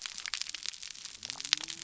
{"label": "biophony", "recorder": "SoundTrap 300"}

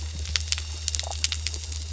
{"label": "anthrophony, boat engine", "recorder": "SoundTrap 300"}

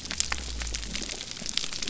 {"label": "biophony", "recorder": "SoundTrap 300"}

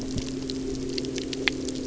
{"label": "anthrophony, boat engine", "recorder": "SoundTrap 300"}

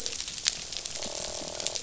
{"label": "biophony, croak", "recorder": "SoundTrap 500"}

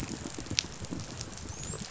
{"label": "biophony, dolphin", "recorder": "SoundTrap 500"}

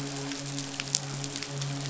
{"label": "biophony, midshipman", "recorder": "SoundTrap 500"}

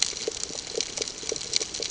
{"label": "ambient", "recorder": "HydroMoth"}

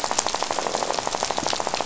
{"label": "biophony, rattle", "recorder": "SoundTrap 500"}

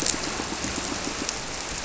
{"label": "biophony, squirrelfish (Holocentrus)", "recorder": "SoundTrap 300"}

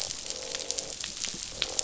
{"label": "biophony, croak", "recorder": "SoundTrap 500"}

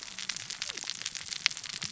{"label": "biophony, cascading saw", "recorder": "SoundTrap 600 or HydroMoth"}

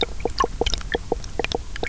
{"label": "biophony, knock croak", "recorder": "SoundTrap 300"}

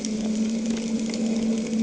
{"label": "anthrophony, boat engine", "recorder": "HydroMoth"}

